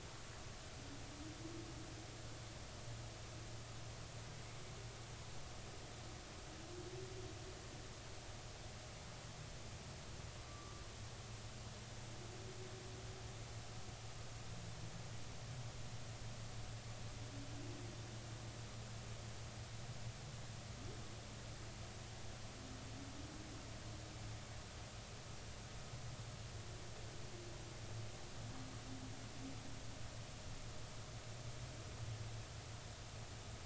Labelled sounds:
10.4	10.8	humpback whale, 1.1 to 1.2 kHz

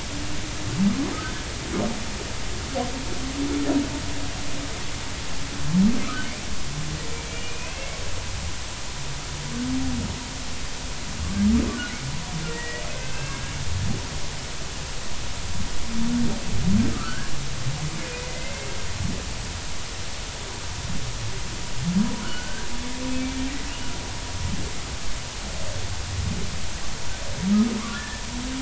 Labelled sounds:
7.3	8.0	humpback whale, 2.1 to 2.9 kHz
11.7	12.0	humpback whale, 1.4 to 1.5 kHz
12.5	13.5	humpback whale, 1.5 to 2.7 kHz
16.9	17.3	humpback whale, 1.2 to 1.7 kHz
18.3	18.7	humpback whale, 2.0 to 2.2 kHz
22.2	22.7	humpback whale, 1.3 to 1.7 kHz
27.9	28.2	humpback whale, 1.6 to 1.8 kHz

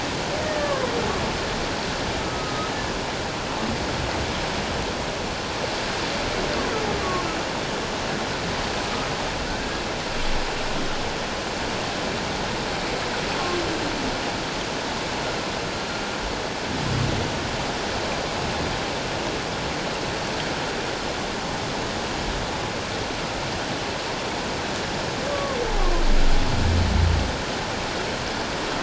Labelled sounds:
2.2	2.7	humpback whale, 1.2 to 1.3 kHz
7.0	7.3	humpback whale, 1.0 to 1.2 kHz
9.5	9.8	humpback whale, 1.4 to 1.7 kHz
25.3	25.6	humpback whale, 1.0 to 1.2 kHz

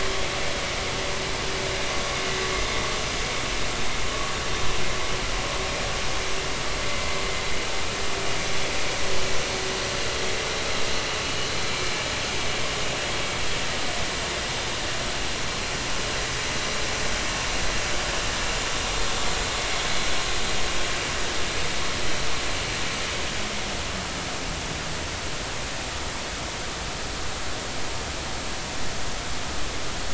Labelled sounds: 11.7	11.9	vessel noise, 2.3 to 2.4 kHz

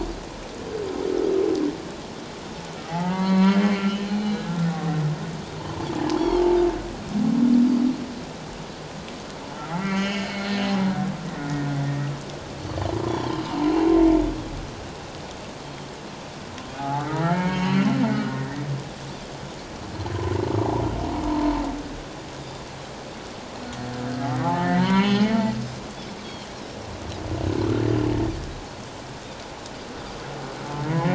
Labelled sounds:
2.9	4.7	humpback whale, 0.78 to 4.5 kHz
5.6	6.6	humpback whale, 0.84 to 1.1 kHz
6.2	6.4	Pacific white-sided dolphin, 3.1 to 5.7 kHz
9.8	11.7	humpback whale, 1.1 to 4.4 kHz
13.0	13.4	Pacific white-sided dolphin, 0.84 to 1.1 kHz
13.1	13.4	humpback whale, 3.0 to 3.5 kHz
15.6	15.9	Pacific white-sided dolphin, 3.0 to 3.3 kHz
16.8	18.4	humpback whale, 0.78 to 4.5 kHz
21.3	21.6	humpback whale, 0.88 to 1.1 kHz
24.5	25.3	humpback whale, 0.78 to 6.6 kHz
26.2	26.5	Pacific white-sided dolphin, 3.0 to 3.4 kHz

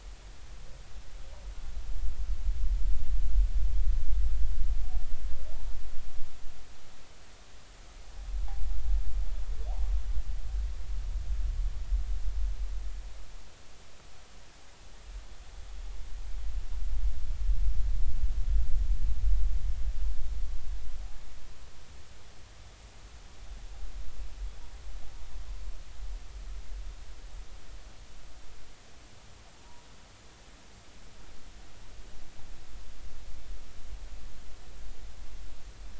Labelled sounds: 29.6	29.9	humpback whale, 0.86 to 1.0 kHz

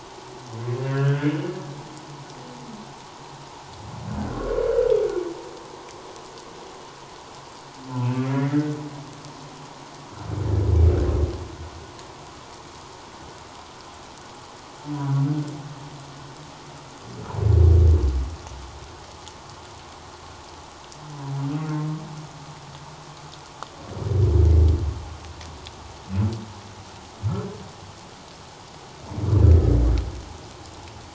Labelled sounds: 0.9	1.4	humpback whale, 1.3 to 1.8 kHz
8.0	8.7	humpback whale, 1.6 to 2.8 kHz

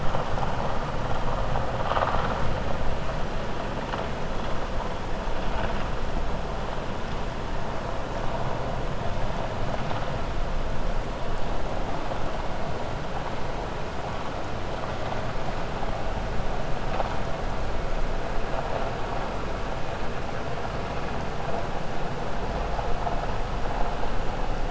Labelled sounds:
1.7	2.4	vessel noise, 0.57 to 4.5 kHz

